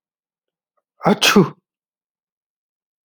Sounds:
Sneeze